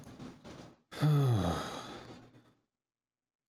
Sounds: Sigh